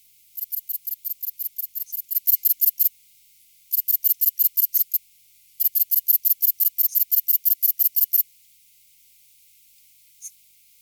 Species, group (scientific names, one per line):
Sepiana sepium
Orthoptera